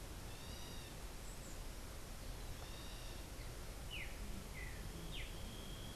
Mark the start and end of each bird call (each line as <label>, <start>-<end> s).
unidentified bird, 0.1-6.0 s
Streaked Saltator (Saltator striatipectus), 3.7-6.0 s